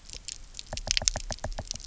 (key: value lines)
label: biophony, knock
recorder: SoundTrap 300